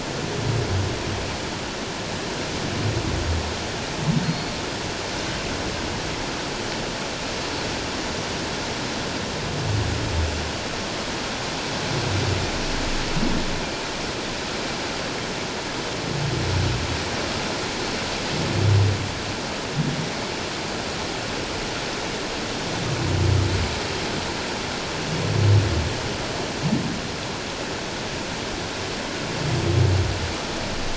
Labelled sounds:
4.2	4.5	humpback whale, 4.2 to 4.5 kHz

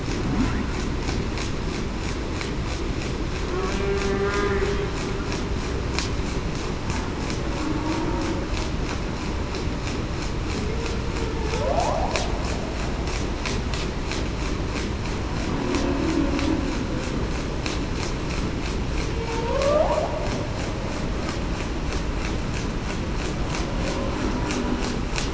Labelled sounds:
19.3	19.9	humpback whale, 0.45 to 1.3 kHz

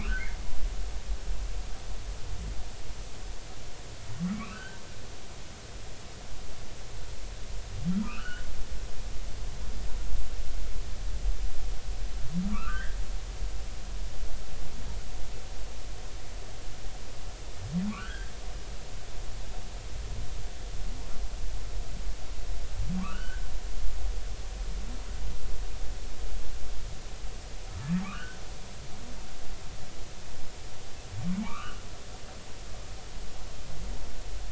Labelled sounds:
0.0	0.3	humpback whale, 1.2 to 1.9 kHz
4.3	4.8	humpback whale, 1.4 to 2.8 kHz
7.9	8.5	humpback whale, 1.2 to 3.0 kHz
12.5	13.0	humpback whale, 1.1 to 2.0 kHz
17.9	18.3	humpback whale, 1.0 to 3.4 kHz
23.0	23.5	humpback whale, 1.0 to 1.7 kHz
28.0	28.4	humpback whale, 1.0 to 1.8 kHz
31.4	31.8	humpback whale, 0.80 to 3.0 kHz

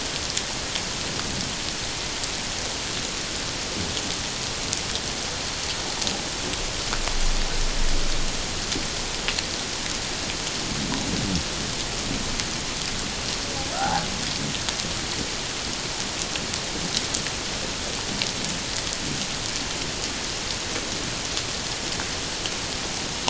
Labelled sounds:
13.7	14.1	humpback whale, 0.78 to 1.7 kHz

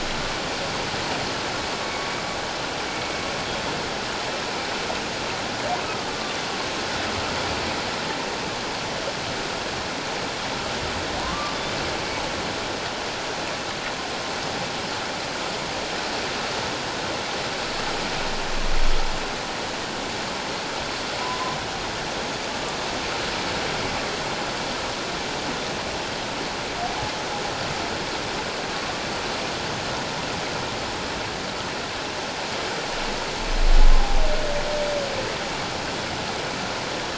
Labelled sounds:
6.1	6.4	humpback whale, 1.1 to 1.2 kHz
11.2	11.6	humpback whale, 0.94 to 1.2 kHz
21.2	21.6	humpback whale, 0.94 to 1.1 kHz

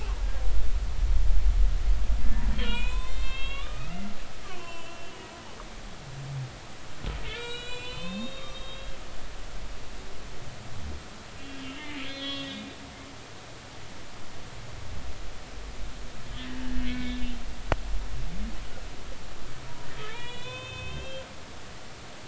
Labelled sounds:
2.5	4.0	humpback whale, 0.90 to 7.4 kHz
4.4	5.3	humpback whale, 0.96 to 3.1 kHz
7.3	8.9	humpback whale, 0.96 to 7.8 kHz
11.6	12.7	humpback whale, 1.9 to 5.1 kHz
16.8	17.2	humpback whale, 1.5 to 2.3 kHz
20.1	21.2	humpback whale, 0.86 to 6.9 kHz

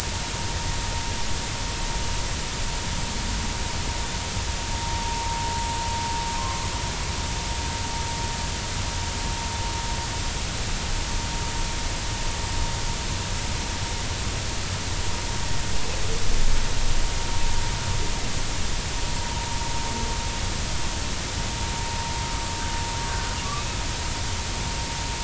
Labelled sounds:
23.1	23.4	humpback whale, 1.3 to 1.6 kHz

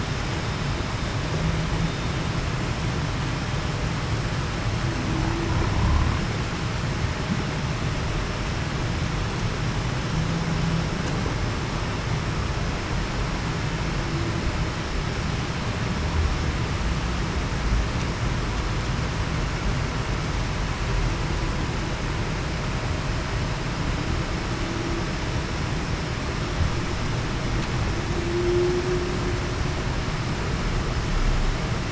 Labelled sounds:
28.2	28.8	humpback whale, 0.33 to 0.38 kHz

